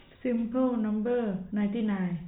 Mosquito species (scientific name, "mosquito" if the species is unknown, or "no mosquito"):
no mosquito